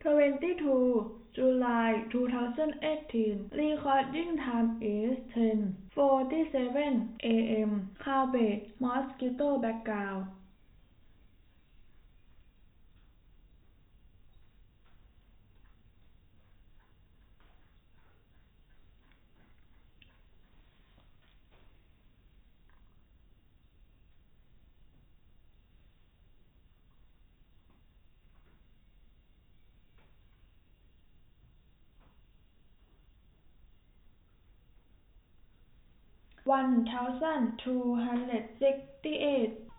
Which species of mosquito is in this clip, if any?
no mosquito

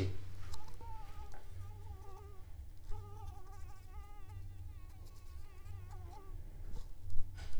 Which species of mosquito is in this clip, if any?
Anopheles arabiensis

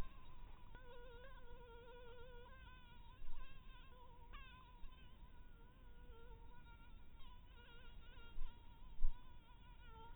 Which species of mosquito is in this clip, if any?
Anopheles dirus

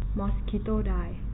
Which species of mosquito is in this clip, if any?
mosquito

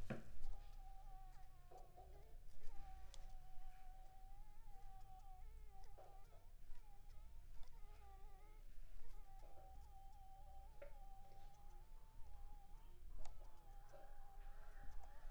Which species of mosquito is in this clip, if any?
Anopheles funestus s.s.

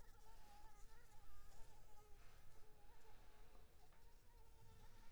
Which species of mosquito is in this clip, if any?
Anopheles arabiensis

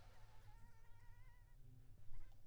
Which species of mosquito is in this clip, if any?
Anopheles arabiensis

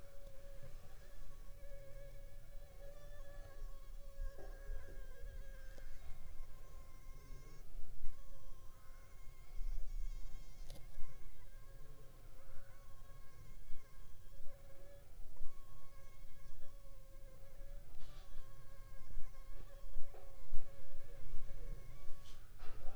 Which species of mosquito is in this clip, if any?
Anopheles funestus s.s.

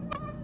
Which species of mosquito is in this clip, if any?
Aedes albopictus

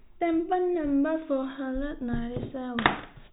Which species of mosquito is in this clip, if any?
no mosquito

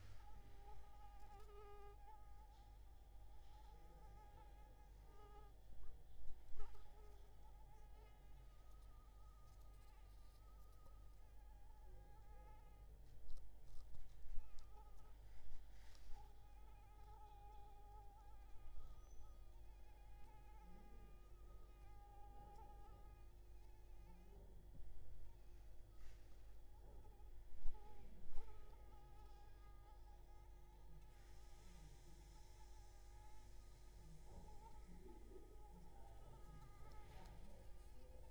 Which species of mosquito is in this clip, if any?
Anopheles arabiensis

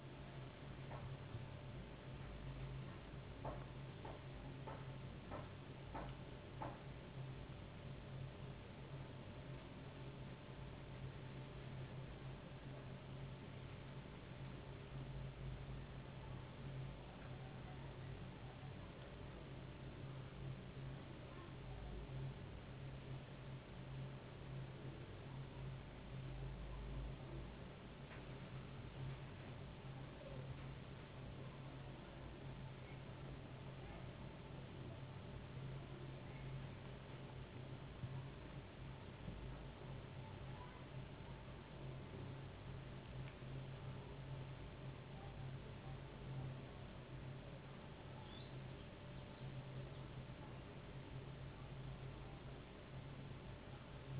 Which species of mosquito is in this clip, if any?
no mosquito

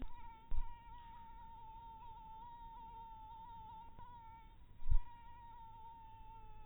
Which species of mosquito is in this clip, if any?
mosquito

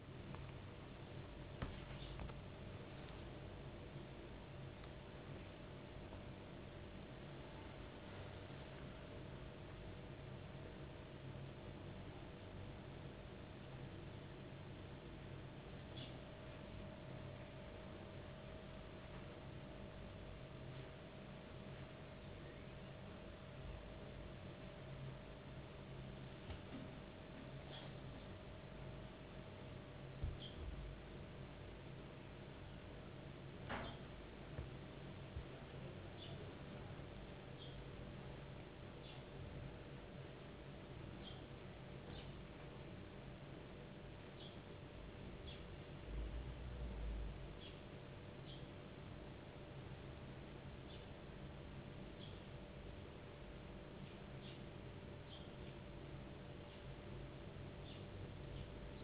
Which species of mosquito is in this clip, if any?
no mosquito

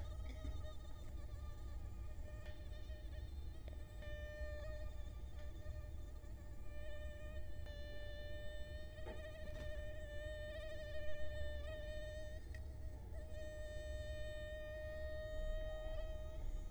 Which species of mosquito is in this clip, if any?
Culex quinquefasciatus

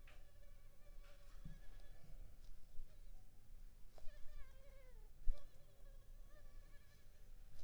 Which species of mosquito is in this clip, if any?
Culex pipiens complex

